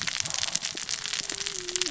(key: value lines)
label: biophony, cascading saw
recorder: SoundTrap 600 or HydroMoth